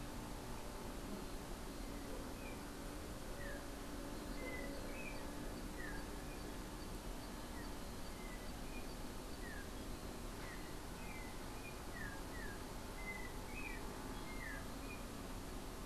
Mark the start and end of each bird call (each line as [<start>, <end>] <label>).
[0.00, 15.86] Yellow-backed Oriole (Icterus chrysater)